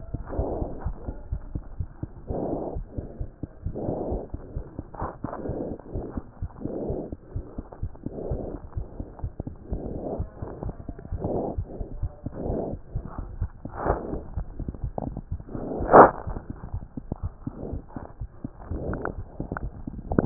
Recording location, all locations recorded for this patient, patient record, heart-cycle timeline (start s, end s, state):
aortic valve (AV)
aortic valve (AV)+pulmonary valve (PV)+tricuspid valve (TV)+mitral valve (MV)
#Age: Child
#Sex: Female
#Height: 89.0 cm
#Weight: 14.1 kg
#Pregnancy status: False
#Murmur: Absent
#Murmur locations: nan
#Most audible location: nan
#Systolic murmur timing: nan
#Systolic murmur shape: nan
#Systolic murmur grading: nan
#Systolic murmur pitch: nan
#Systolic murmur quality: nan
#Diastolic murmur timing: nan
#Diastolic murmur shape: nan
#Diastolic murmur grading: nan
#Diastolic murmur pitch: nan
#Diastolic murmur quality: nan
#Outcome: Normal
#Campaign: 2015 screening campaign
0.00	0.83	unannotated
0.83	0.94	S1
0.94	1.05	systole
1.05	1.16	S2
1.16	1.30	diastole
1.30	1.42	S1
1.42	1.54	systole
1.54	1.62	S2
1.62	1.76	diastole
1.76	1.88	S1
1.88	1.92	diastole
1.92	2.01	systole
2.01	2.10	S2
2.10	2.28	diastole
2.28	2.38	S1
2.38	2.50	systole
2.50	2.60	S2
2.60	2.76	diastole
2.76	2.85	S1
2.85	2.96	systole
2.96	3.06	S2
3.06	3.19	diastole
3.19	3.26	S1
3.26	3.34	diastole
3.34	3.42	systole
3.42	3.48	S2
3.48	3.65	diastole
3.65	3.74	S1
3.74	3.86	systole
3.86	3.94	S2
3.94	4.10	diastole
4.10	4.20	S1
4.20	4.31	systole
4.31	4.40	S2
4.40	4.54	diastole
4.54	4.62	S1
4.62	4.76	systole
4.76	4.84	S2
4.84	5.01	diastole
5.01	5.09	S1
5.09	5.21	systole
5.21	5.30	S2
5.30	5.46	diastole
5.46	5.58	S1
5.58	5.68	systole
5.68	5.76	S2
5.76	5.92	diastole
5.92	6.06	S1
6.06	6.15	systole
6.15	6.24	S2
6.24	6.39	diastole
6.39	6.50	S1
6.50	6.62	systole
6.62	6.74	S2
6.74	6.87	diastole
6.87	7.00	S1
7.00	7.10	systole
7.10	7.18	S2
7.18	7.32	diastole
7.32	7.44	S1
7.44	7.56	systole
7.56	7.66	S2
7.66	7.80	diastole
7.80	7.92	S1
7.92	8.03	systole
8.03	8.14	S2
8.14	8.28	diastole
8.28	8.39	S1
8.39	8.51	systole
8.51	8.60	S2
8.60	8.74	diastole
8.74	8.86	S1
8.86	8.97	systole
8.97	9.05	S2
9.05	9.22	diastole
9.22	9.32	S1
9.32	9.45	systole
9.45	9.51	S2
9.51	9.71	diastole
9.71	9.82	S1
9.82	9.93	systole
9.93	10.04	S2
10.04	10.18	diastole
10.18	10.28	S1
10.28	10.39	systole
10.39	10.50	S2
10.50	10.63	diastole
10.63	10.74	S1
10.74	10.87	systole
10.87	10.98	S2
10.98	11.10	diastole
11.10	11.26	S1
11.26	11.40	systole
11.40	11.52	S2
11.52	11.58	diastole
11.58	11.68	S1
11.68	11.79	systole
11.79	11.86	S2
11.86	12.02	diastole
12.02	12.12	S1
12.12	12.24	systole
12.24	12.32	S2
12.32	12.46	diastole
12.46	20.26	unannotated